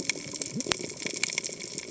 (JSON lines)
{"label": "biophony, cascading saw", "recorder": "HydroMoth"}